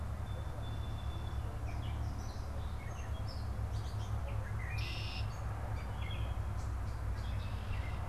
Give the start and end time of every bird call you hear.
[0.00, 1.70] Song Sparrow (Melospiza melodia)
[0.00, 8.09] Gray Catbird (Dumetella carolinensis)
[4.29, 5.50] Red-winged Blackbird (Agelaius phoeniceus)

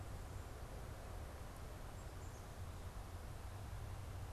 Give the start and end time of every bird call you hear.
[0.00, 4.33] Black-capped Chickadee (Poecile atricapillus)

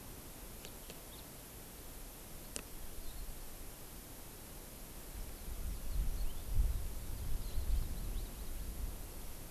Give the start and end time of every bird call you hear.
[5.20, 6.50] House Finch (Haemorhous mexicanus)
[7.00, 8.80] House Finch (Haemorhous mexicanus)

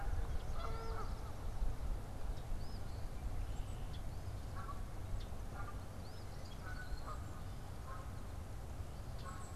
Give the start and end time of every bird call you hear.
[0.00, 1.52] Canada Goose (Branta canadensis)
[0.00, 6.62] Eastern Phoebe (Sayornis phoebe)
[4.42, 9.55] Canada Goose (Branta canadensis)
[9.02, 9.55] Golden-crowned Kinglet (Regulus satrapa)

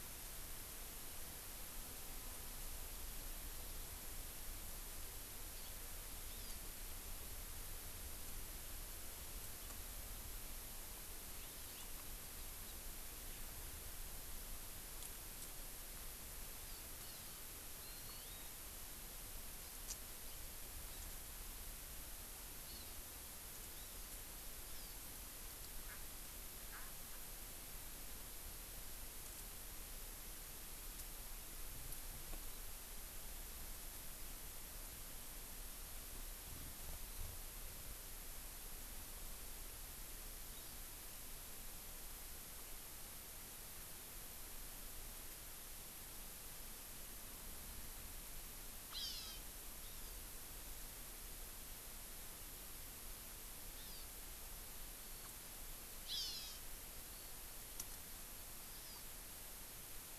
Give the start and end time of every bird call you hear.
[5.56, 5.76] Hawaii Amakihi (Chlorodrepanis virens)
[6.26, 6.56] Hawaii Amakihi (Chlorodrepanis virens)
[11.36, 11.96] Hawaii Amakihi (Chlorodrepanis virens)
[12.36, 12.76] Hawaii Amakihi (Chlorodrepanis virens)
[16.56, 17.46] Hawaii Amakihi (Chlorodrepanis virens)
[17.76, 18.46] Hawaii Amakihi (Chlorodrepanis virens)
[19.86, 19.96] Japanese Bush Warbler (Horornis diphone)
[22.66, 22.86] Hawaii Amakihi (Chlorodrepanis virens)
[23.66, 24.16] Hawaii Amakihi (Chlorodrepanis virens)
[24.66, 24.96] Hawaii Amakihi (Chlorodrepanis virens)
[25.86, 25.96] Erckel's Francolin (Pternistis erckelii)
[26.66, 26.96] Erckel's Francolin (Pternistis erckelii)
[30.96, 31.06] Japanese Bush Warbler (Horornis diphone)
[40.56, 40.86] Hawaii Amakihi (Chlorodrepanis virens)
[48.86, 49.46] Hawaii Amakihi (Chlorodrepanis virens)
[49.76, 50.26] Hawaii Amakihi (Chlorodrepanis virens)
[53.76, 54.06] Hawaii Amakihi (Chlorodrepanis virens)
[56.06, 56.66] Hawaii Amakihi (Chlorodrepanis virens)
[57.16, 57.36] Eurasian Skylark (Alauda arvensis)
[57.76, 57.86] Japanese Bush Warbler (Horornis diphone)
[58.76, 59.06] Hawaii Amakihi (Chlorodrepanis virens)

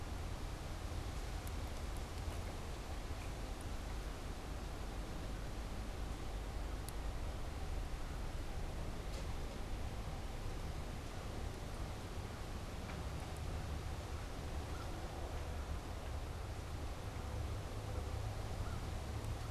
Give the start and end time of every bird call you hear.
[13.99, 14.99] American Crow (Corvus brachyrhynchos)
[18.39, 19.49] American Crow (Corvus brachyrhynchos)

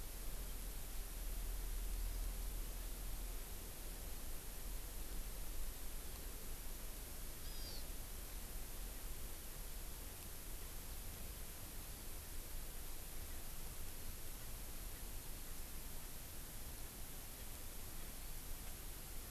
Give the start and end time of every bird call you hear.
[7.45, 7.85] Hawaiian Hawk (Buteo solitarius)

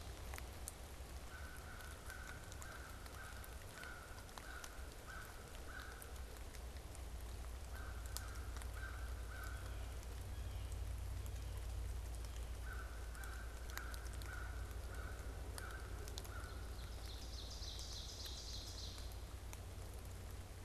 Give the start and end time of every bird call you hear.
[1.20, 16.70] American Crow (Corvus brachyrhynchos)
[16.30, 19.40] Ovenbird (Seiurus aurocapilla)

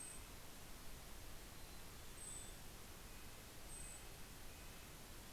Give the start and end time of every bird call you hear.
[0.00, 5.32] Golden-crowned Kinglet (Regulus satrapa)
[0.00, 5.32] Red-breasted Nuthatch (Sitta canadensis)
[0.89, 3.09] Mountain Chickadee (Poecile gambeli)

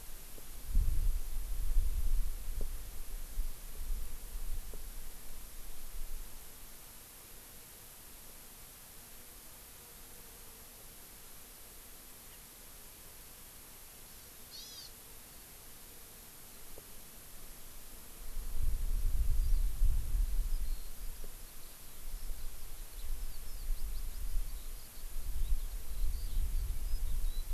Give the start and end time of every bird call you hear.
[14.05, 14.85] Hawaii Amakihi (Chlorodrepanis virens)
[19.35, 19.65] Eurasian Skylark (Alauda arvensis)
[20.45, 27.53] Eurasian Skylark (Alauda arvensis)

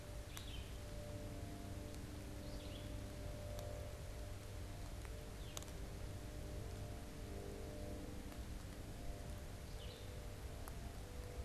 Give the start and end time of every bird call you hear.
[0.00, 10.60] Red-eyed Vireo (Vireo olivaceus)

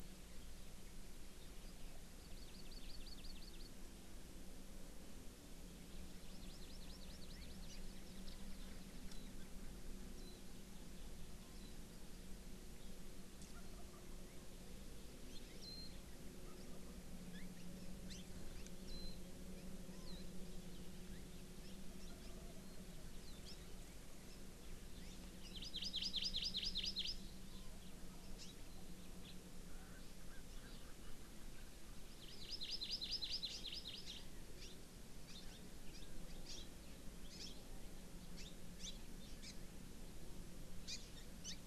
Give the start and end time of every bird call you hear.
[2.20, 3.70] Hawaii Amakihi (Chlorodrepanis virens)
[6.20, 7.80] Hawaii Amakihi (Chlorodrepanis virens)
[9.10, 9.30] Warbling White-eye (Zosterops japonicus)
[10.20, 10.40] Warbling White-eye (Zosterops japonicus)
[11.50, 11.70] Warbling White-eye (Zosterops japonicus)
[15.30, 15.40] Hawaii Amakihi (Chlorodrepanis virens)
[15.60, 15.90] Warbling White-eye (Zosterops japonicus)
[17.30, 17.70] Hawaii Amakihi (Chlorodrepanis virens)
[18.10, 18.20] Hawaii Amakihi (Chlorodrepanis virens)
[18.90, 19.20] Warbling White-eye (Zosterops japonicus)
[20.00, 20.20] Warbling White-eye (Zosterops japonicus)
[23.20, 23.60] Warbling White-eye (Zosterops japonicus)
[25.50, 27.10] Hawaii Amakihi (Chlorodrepanis virens)
[28.40, 28.50] Hawaii Amakihi (Chlorodrepanis virens)
[29.70, 31.60] Erckel's Francolin (Pternistis erckelii)
[32.10, 34.20] Hawaii Amakihi (Chlorodrepanis virens)
[34.60, 34.80] Hawaii Amakihi (Chlorodrepanis virens)
[35.20, 35.60] Hawaii Amakihi (Chlorodrepanis virens)
[35.90, 36.10] Hawaii Amakihi (Chlorodrepanis virens)
[36.50, 36.70] Hawaii Amakihi (Chlorodrepanis virens)
[37.20, 37.60] Hawaii Amakihi (Chlorodrepanis virens)
[38.30, 38.50] Hawaii Amakihi (Chlorodrepanis virens)
[38.80, 39.00] Hawaii Amakihi (Chlorodrepanis virens)
[39.40, 39.50] Hawaii Amakihi (Chlorodrepanis virens)
[40.90, 41.60] Hawaii Amakihi (Chlorodrepanis virens)

